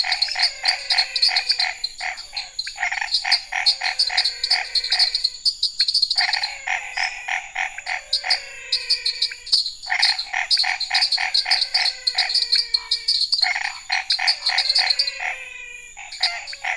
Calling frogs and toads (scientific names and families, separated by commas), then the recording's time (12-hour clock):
Dendropsophus nanus (Hylidae), Boana raniceps (Hylidae), Physalaemus albonotatus (Leptodactylidae), Scinax fuscovarius (Hylidae), Leptodactylus podicipinus (Leptodactylidae)
8:45pm